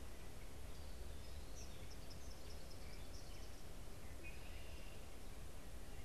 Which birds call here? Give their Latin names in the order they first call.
Tyrannus tyrannus, Agelaius phoeniceus